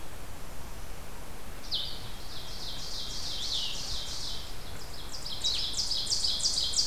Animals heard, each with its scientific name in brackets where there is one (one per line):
Ovenbird (Seiurus aurocapilla)
Blue-headed Vireo (Vireo solitarius)